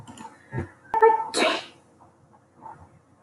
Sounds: Sneeze